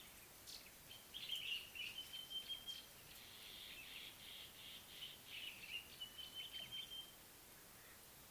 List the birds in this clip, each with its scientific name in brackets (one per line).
Common Bulbul (Pycnonotus barbatus)
Sulphur-breasted Bushshrike (Telophorus sulfureopectus)